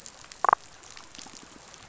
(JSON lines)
{"label": "biophony, damselfish", "recorder": "SoundTrap 500"}